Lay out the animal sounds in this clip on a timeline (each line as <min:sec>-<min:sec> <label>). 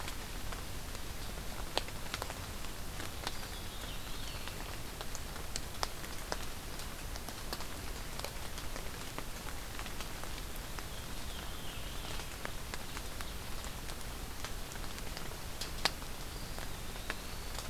0:03.1-0:04.6 Eastern Wood-Pewee (Contopus virens)
0:03.2-0:04.6 Veery (Catharus fuscescens)
0:10.9-0:12.2 Veery (Catharus fuscescens)
0:16.2-0:17.7 Eastern Wood-Pewee (Contopus virens)